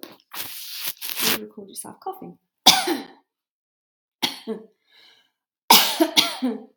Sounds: Cough